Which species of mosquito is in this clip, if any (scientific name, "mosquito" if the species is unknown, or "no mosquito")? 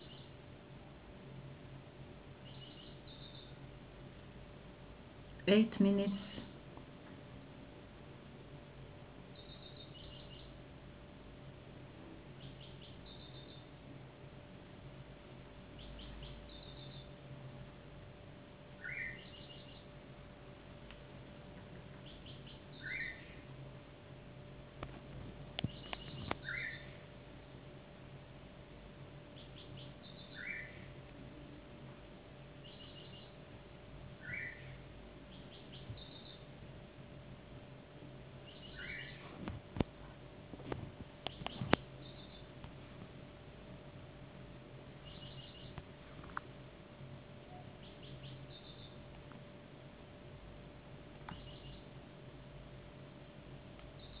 no mosquito